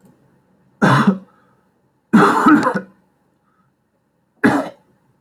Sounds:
Cough